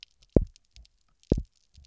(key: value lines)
label: biophony, double pulse
recorder: SoundTrap 300